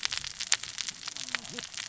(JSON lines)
{"label": "biophony, cascading saw", "recorder": "SoundTrap 600 or HydroMoth"}